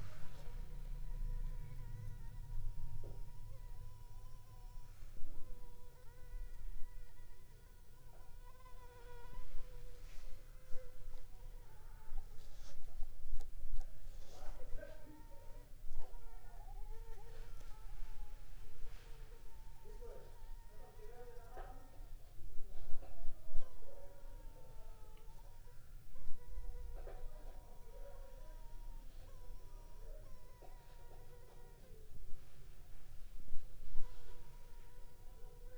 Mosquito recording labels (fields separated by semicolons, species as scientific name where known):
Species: Anopheles funestus s.s.; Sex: female; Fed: unfed; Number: one; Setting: cup